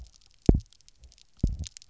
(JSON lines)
{"label": "biophony, double pulse", "recorder": "SoundTrap 300"}